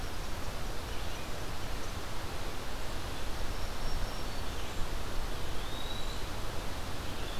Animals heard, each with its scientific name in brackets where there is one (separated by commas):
Eastern Wood-Pewee (Contopus virens), Black-throated Green Warbler (Setophaga virens)